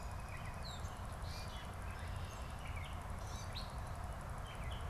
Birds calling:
Gray Catbird (Dumetella carolinensis)

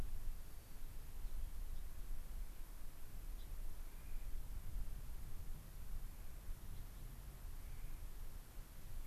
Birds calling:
White-crowned Sparrow (Zonotrichia leucophrys)
Gray-crowned Rosy-Finch (Leucosticte tephrocotis)
Clark's Nutcracker (Nucifraga columbiana)

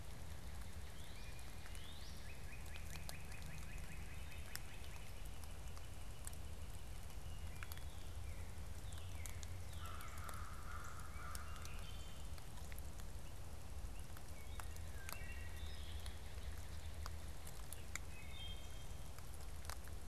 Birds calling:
Northern Cardinal (Cardinalis cardinalis)
Northern Flicker (Colaptes auratus)
Wood Thrush (Hylocichla mustelina)
American Crow (Corvus brachyrhynchos)

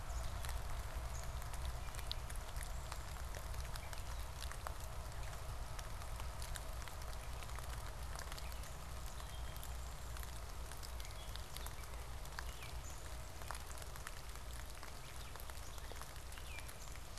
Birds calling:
Gray Catbird (Dumetella carolinensis)

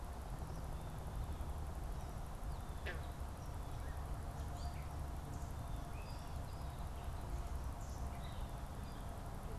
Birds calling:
Eastern Kingbird (Tyrannus tyrannus)
Gray Catbird (Dumetella carolinensis)

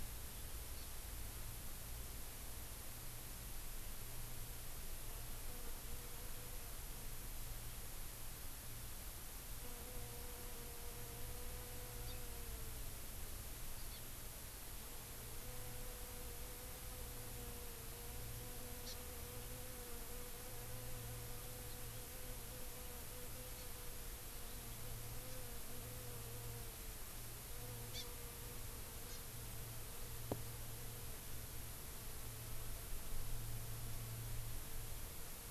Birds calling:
Hawaii Amakihi (Chlorodrepanis virens)

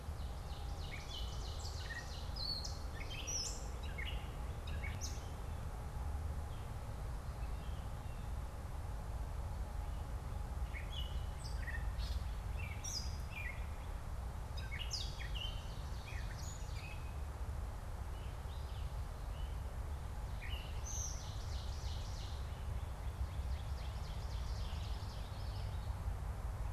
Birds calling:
Ovenbird (Seiurus aurocapilla)
Gray Catbird (Dumetella carolinensis)
Common Yellowthroat (Geothlypis trichas)

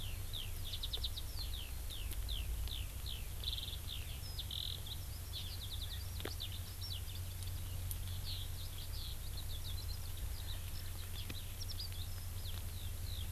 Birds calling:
Eurasian Skylark (Alauda arvensis)

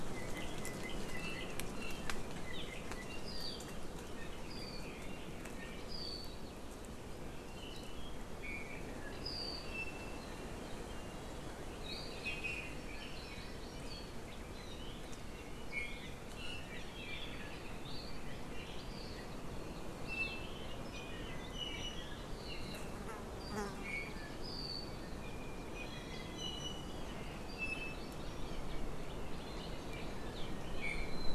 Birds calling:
Hawaii Amakihi (Chlorodrepanis virens)
Iiwi (Drepanis coccinea)

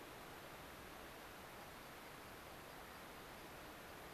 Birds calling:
American Pipit (Anthus rubescens)

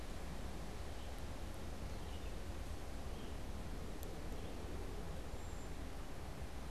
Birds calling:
Red-eyed Vireo (Vireo olivaceus)
Cedar Waxwing (Bombycilla cedrorum)

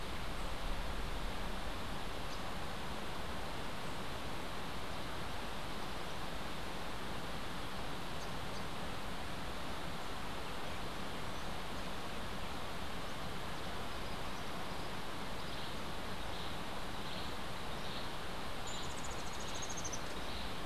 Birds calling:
Blue-vented Hummingbird (Saucerottia hoffmanni)

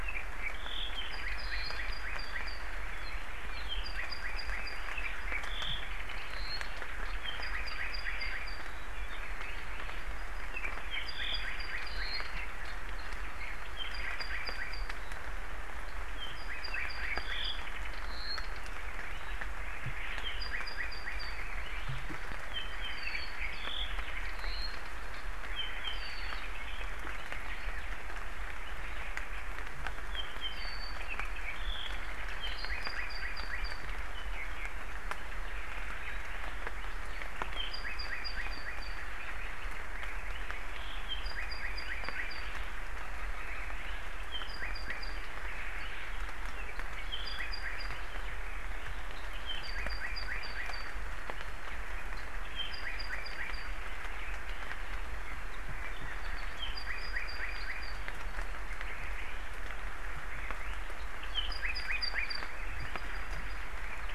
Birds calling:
Hawaii Elepaio (Chasiempis sandwichensis)
Apapane (Himatione sanguinea)

